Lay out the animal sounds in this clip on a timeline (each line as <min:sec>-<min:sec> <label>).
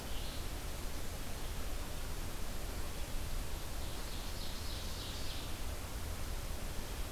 0:03.6-0:05.8 Ovenbird (Seiurus aurocapilla)